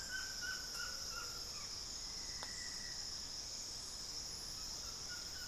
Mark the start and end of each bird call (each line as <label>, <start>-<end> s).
Buff-throated Woodcreeper (Xiphorhynchus guttatus), 0.0-5.5 s